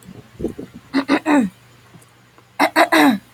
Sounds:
Throat clearing